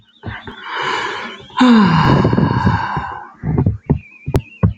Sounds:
Sigh